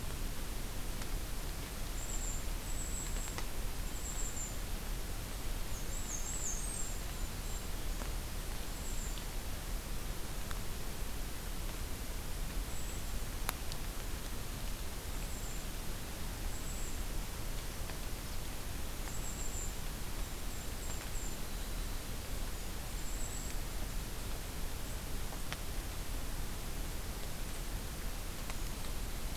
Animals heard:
Golden-crowned Kinglet (Regulus satrapa), Black-and-white Warbler (Mniotilta varia)

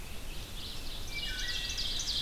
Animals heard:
Ovenbird (Seiurus aurocapilla), Wood Thrush (Hylocichla mustelina)

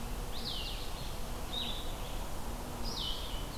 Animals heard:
Blue-headed Vireo (Vireo solitarius)

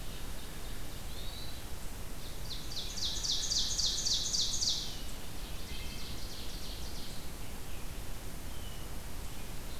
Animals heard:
Ovenbird (Seiurus aurocapilla), Hermit Thrush (Catharus guttatus), Wood Thrush (Hylocichla mustelina)

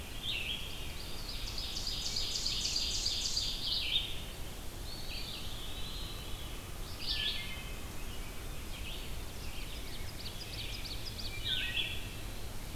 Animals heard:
Red-eyed Vireo (Vireo olivaceus), Wood Thrush (Hylocichla mustelina), Veery (Catharus fuscescens), Eastern Wood-Pewee (Contopus virens), Ovenbird (Seiurus aurocapilla)

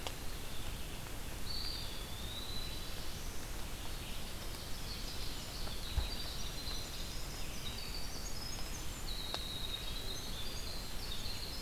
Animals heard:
Red-eyed Vireo (Vireo olivaceus), Eastern Wood-Pewee (Contopus virens), Ovenbird (Seiurus aurocapilla), Winter Wren (Troglodytes hiemalis)

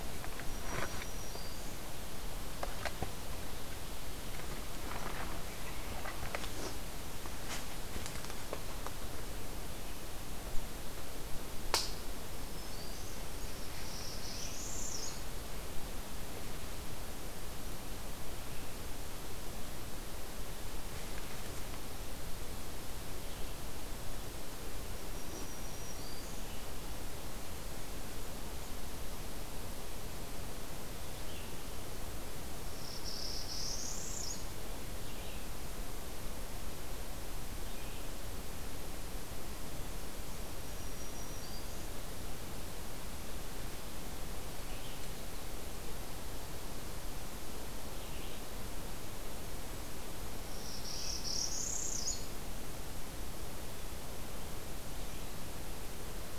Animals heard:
Northern Parula (Setophaga americana), Black-throated Green Warbler (Setophaga virens)

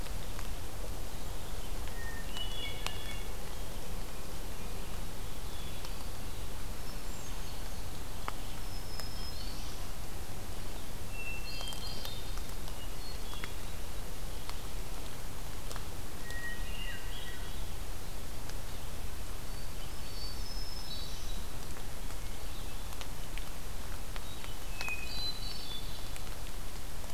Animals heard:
Hermit Thrush (Catharus guttatus), Black-throated Green Warbler (Setophaga virens)

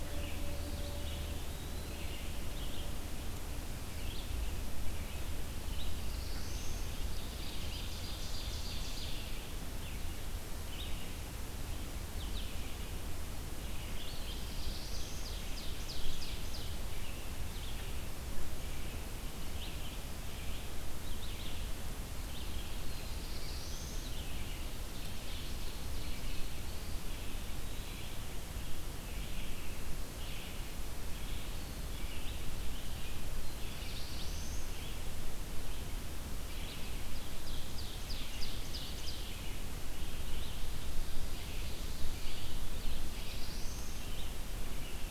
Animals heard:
Eastern Wood-Pewee (Contopus virens), Red-eyed Vireo (Vireo olivaceus), Ovenbird (Seiurus aurocapilla), Black-throated Blue Warbler (Setophaga caerulescens)

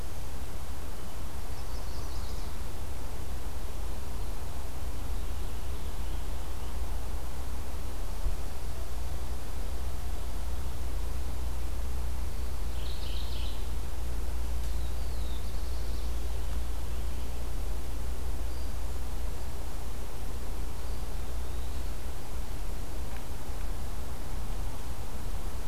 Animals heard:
Chestnut-sided Warbler (Setophaga pensylvanica), Mourning Warbler (Geothlypis philadelphia), Eastern Wood-Pewee (Contopus virens), Black-throated Blue Warbler (Setophaga caerulescens)

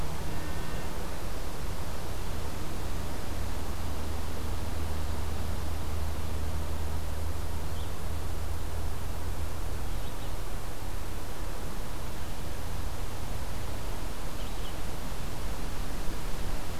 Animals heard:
Red-eyed Vireo (Vireo olivaceus)

